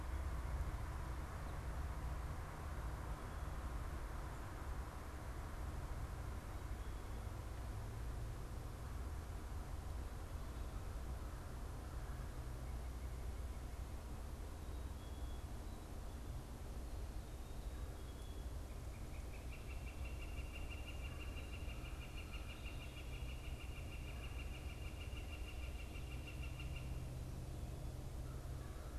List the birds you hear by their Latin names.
Poecile atricapillus, Colaptes auratus